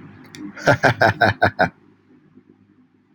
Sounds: Laughter